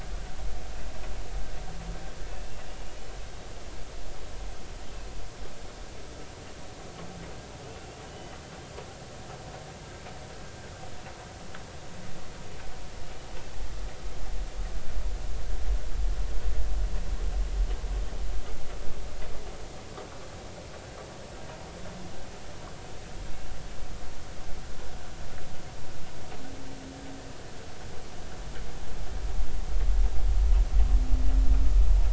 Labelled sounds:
8.1	8.4	humpback whale, 2.9 to 3.1 kHz

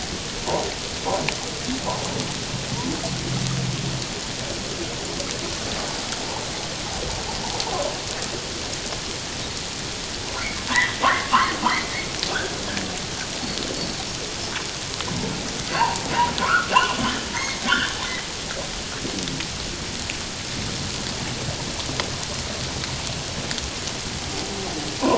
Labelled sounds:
10.7	12.1	humpback whale, 0.78 to 2.3 kHz
15.7	17.0	humpback whale, 0.78 to 3.0 kHz
17.3	17.9	humpback whale, 1.3 to 3.3 kHz

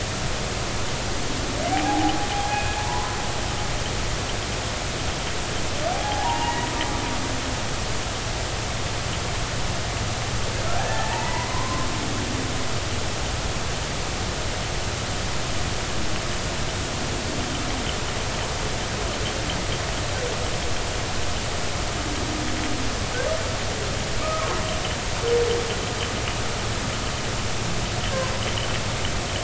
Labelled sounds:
1.7	3.2	humpback whale, 0.80 to 2.6 kHz
5.9	6.7	humpback whale, 0.80 to 2.9 kHz
10.8	11.9	humpback whale, 0.80 to 2.1 kHz
24.2	24.6	humpback whale, 0.99 to 1.3 kHz

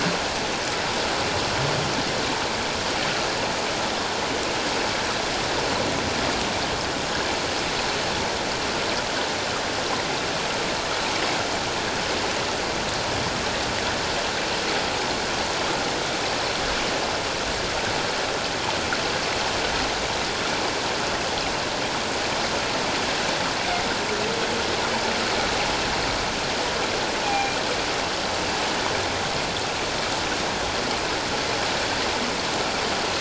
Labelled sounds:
27.2	27.6	humpback whale, 0.78 to 2.5 kHz

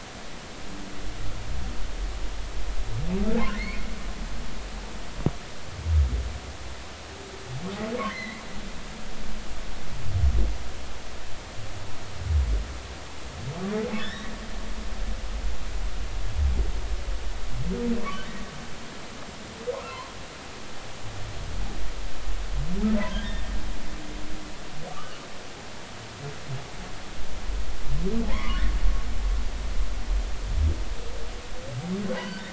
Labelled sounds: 3.6	3.9	humpback whale, 1.9 to 2.5 kHz
8.1	8.4	humpback whale, 1.8 to 4.2 kHz
14.0	14.3	humpback whale, 1.6 to 3.9 kHz
19.7	20.1	humpback whale, 0.86 to 1.5 kHz
23.2	23.5	humpback whale, 1.8 to 1.9 kHz
24.9	25.2	humpback whale, 1.1 to 1.3 kHz
28.3	28.6	humpback whale, 0.80 to 2.4 kHz
32.1	32.5	humpback whale, 1.5 to 3.1 kHz

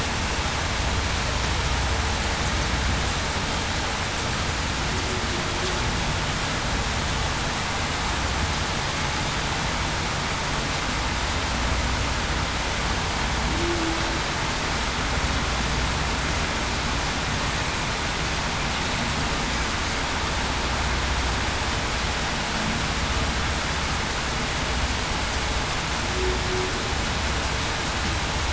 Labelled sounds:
13.5	13.9	humpback whale, 0.28 to 0.38 kHz

